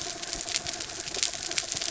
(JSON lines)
{"label": "anthrophony, mechanical", "recorder": "SoundTrap 300"}